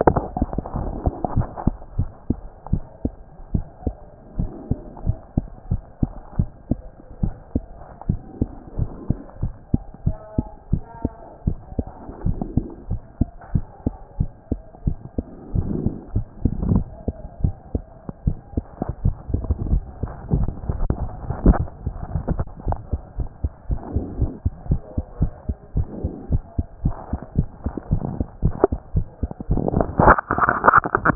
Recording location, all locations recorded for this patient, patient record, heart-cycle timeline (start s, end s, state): mitral valve (MV)
aortic valve (AV)+pulmonary valve (PV)+tricuspid valve (TV)+mitral valve (MV)
#Age: Child
#Sex: Female
#Height: 133.0 cm
#Weight: 25.0 kg
#Pregnancy status: False
#Murmur: Absent
#Murmur locations: nan
#Most audible location: nan
#Systolic murmur timing: nan
#Systolic murmur shape: nan
#Systolic murmur grading: nan
#Systolic murmur pitch: nan
#Systolic murmur quality: nan
#Diastolic murmur timing: nan
#Diastolic murmur shape: nan
#Diastolic murmur grading: nan
#Diastolic murmur pitch: nan
#Diastolic murmur quality: nan
#Outcome: Abnormal
#Campaign: 2014 screening campaign
0.00	1.98	unannotated
1.98	2.08	S1
2.08	2.28	systole
2.28	2.38	S2
2.38	2.70	diastole
2.70	2.82	S1
2.82	3.04	systole
3.04	3.12	S2
3.12	3.52	diastole
3.52	3.64	S1
3.64	3.86	systole
3.86	3.94	S2
3.94	4.38	diastole
4.38	4.50	S1
4.50	4.70	systole
4.70	4.78	S2
4.78	5.06	diastole
5.06	5.18	S1
5.18	5.36	systole
5.36	5.46	S2
5.46	5.70	diastole
5.70	5.82	S1
5.82	6.00	systole
6.00	6.10	S2
6.10	6.38	diastole
6.38	6.48	S1
6.48	6.70	systole
6.70	6.78	S2
6.78	7.22	diastole
7.22	7.34	S1
7.34	7.54	systole
7.54	7.64	S2
7.64	8.08	diastole
8.08	8.20	S1
8.20	8.40	systole
8.40	8.48	S2
8.48	8.78	diastole
8.78	8.90	S1
8.90	9.08	systole
9.08	9.18	S2
9.18	9.42	diastole
9.42	9.52	S1
9.52	9.72	systole
9.72	9.82	S2
9.82	10.04	diastole
10.04	10.16	S1
10.16	10.36	systole
10.36	10.46	S2
10.46	10.70	diastole
10.70	10.82	S1
10.82	11.02	systole
11.02	11.12	S2
11.12	11.46	diastole
11.46	11.58	S1
11.58	11.76	systole
11.76	11.86	S2
11.86	12.24	diastole
12.24	12.38	S1
12.38	12.56	systole
12.56	12.66	S2
12.66	12.90	diastole
12.90	13.02	S1
13.02	13.20	systole
13.20	13.28	S2
13.28	13.52	diastole
13.52	13.64	S1
13.64	13.84	systole
13.84	13.94	S2
13.94	14.18	diastole
14.18	14.30	S1
14.30	14.50	systole
14.50	14.60	S2
14.60	14.86	diastole
14.86	14.96	S1
14.96	15.16	systole
15.16	15.26	S2
15.26	15.54	diastole
15.54	31.15	unannotated